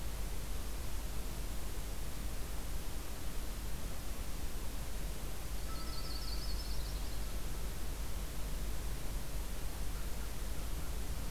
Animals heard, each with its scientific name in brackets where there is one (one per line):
Yellow-rumped Warbler (Setophaga coronata)